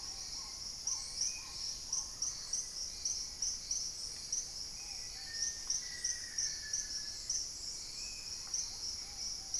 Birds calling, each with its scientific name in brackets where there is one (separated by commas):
Hauxwell's Thrush (Turdus hauxwelli), Gray-fronted Dove (Leptotila rufaxilla), Paradise Tanager (Tangara chilensis), unidentified bird, Black-tailed Trogon (Trogon melanurus), Black-faced Antthrush (Formicarius analis), Spot-winged Antshrike (Pygiptila stellaris), Little Tinamou (Crypturellus soui), Ruddy Pigeon (Patagioenas subvinacea)